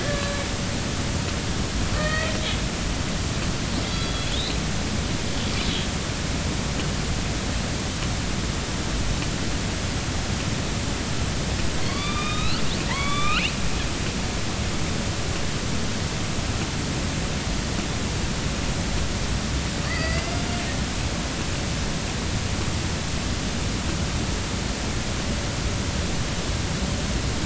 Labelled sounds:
0.0	0.4	killer whale, northern resident, A clan, AB subclan, call N18, 1.6 to 1.8 kHz
1.9	2.3	killer whale, northern resident, A clan, AB subclan, call N18, 1.1 to 3.2 kHz
3.8	4.6	killer whale, northern resident, A clan, AB subclan, call N07iii, 3.2 to 4.7 kHz
11.8	13.5	killer whale, northern resident, A clan, AB subclan, call N16, 0.86 to 4.7 kHz
19.8	20.3	killer whale, northern resident, A clan, AB subclan, 1.7 to 4.9 kHz

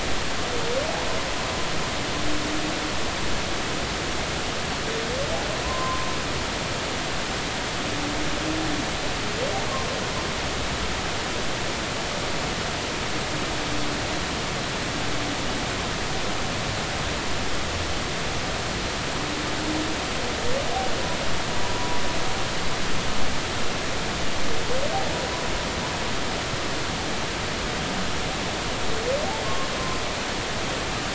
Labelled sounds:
5.6	6.1	humpback whale, 0.96 to 1.1 kHz
21.8	22.0	humpback whale, 0.93 to 1.1 kHz
29.4	29.7	humpback whale, 1.0 to 1.1 kHz

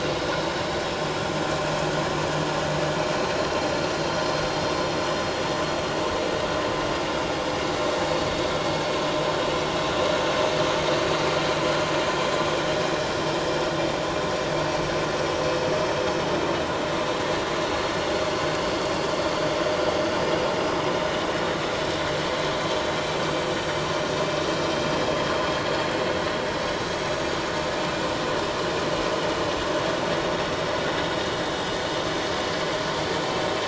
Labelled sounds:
17.6	17.9	vessel noise, 4.2 to 4.3 kHz
20.2	20.4	vessel noise, 4.8 to 5.0 kHz
32.8	33.1	vessel noise, 6.6 to 6.7 kHz

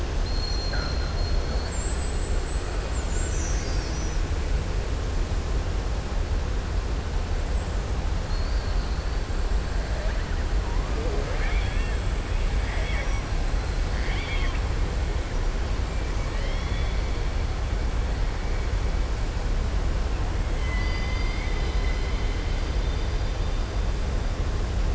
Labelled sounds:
0.1	1.8	killer whale, southern resident, 3.5 to 5.9 kHz
8.2	9.1	killer whale, southern resident, 4.0 to 4.7 kHz
12.6	13.3	killer whale, southern resident, 1.1 to 5.9 kHz
13.9	14.6	killer whale, southern resident, 1.1 to 5.2 kHz
16.3	17.0	killer whale, southern resident, 1.2 to 5.6 kHz
20.5	22.3	killer whale, southern resident, 1.1 to 5.1 kHz

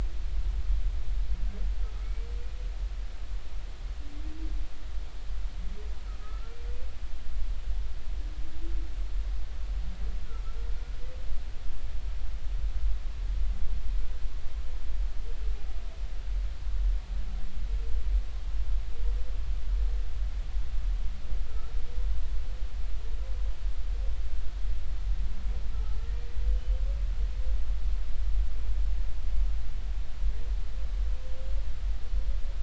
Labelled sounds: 2.0	2.3	humpback whale, 2.1 to 2.3 kHz
6.2	6.6	humpback whale, 1.2 to 1.4 kHz
26.5	26.9	humpback whale, 2.9 to 3.1 kHz

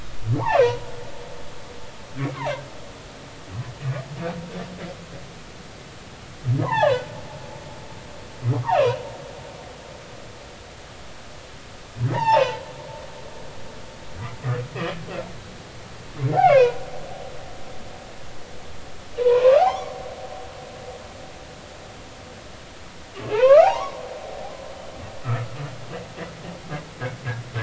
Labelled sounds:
0.5	0.8	humpback whale, 0.90 to 2.8 kHz
2.2	2.7	humpback whale, 1.5 to 2.4 kHz
6.6	7.1	humpback whale, 0.80 to 3.6 kHz
8.7	9.0	humpback whale, 2.4 to 3.1 kHz
12.1	12.5	humpback whale, 0.80 to 3.8 kHz
13.1	13.4	humpback whale, 1.7 to 2.1 kHz
16.4	16.8	humpback whale, 0.93 to 3.1 kHz
19.2	20.0	humpback whale, 0.80 to 2.3 kHz
23.2	24.0	humpback whale, 0.80 to 2.8 kHz

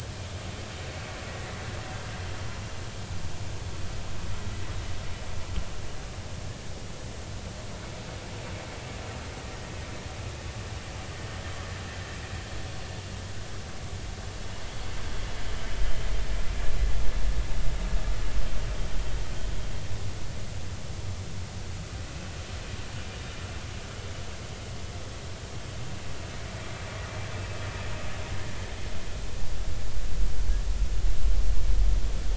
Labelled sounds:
1.3	1.7	vessel noise, 1.8 to 2.1 kHz
9.4	9.7	vessel noise, 1.8 to 1.9 kHz

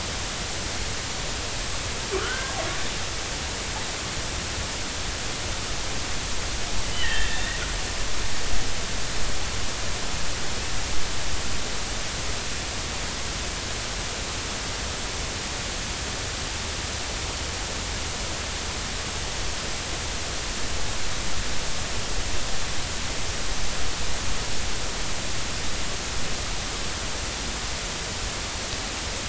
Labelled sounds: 2.1	2.6	killer whale, northern resident, 1.1 to 1.7 kHz
6.9	7.6	killer whale, northern resident, 1.6 to 3.7 kHz

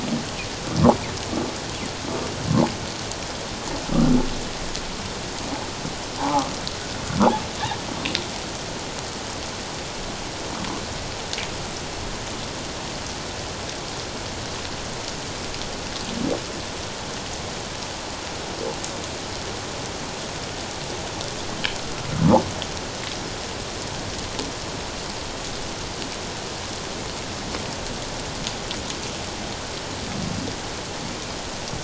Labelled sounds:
6.2	6.5	humpback whale, 0.78 to 1.3 kHz

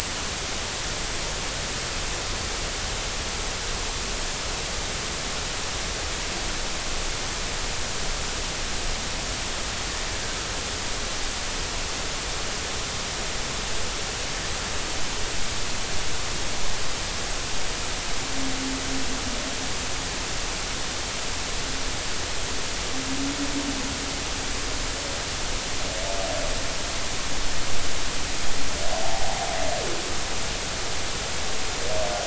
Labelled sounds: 29.0	29.4	humpback whale, 0.80 to 0.93 kHz

